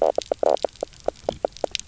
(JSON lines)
{"label": "biophony, knock croak", "recorder": "SoundTrap 300"}